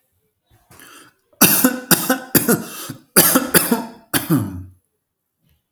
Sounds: Cough